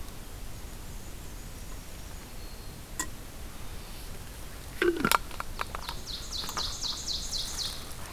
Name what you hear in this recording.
Black-and-white Warbler, Black-throated Green Warbler, Black-capped Chickadee, Ovenbird